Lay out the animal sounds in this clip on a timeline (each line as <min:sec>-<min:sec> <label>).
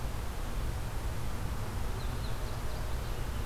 0:01.8-0:03.0 Indigo Bunting (Passerina cyanea)